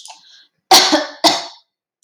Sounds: Cough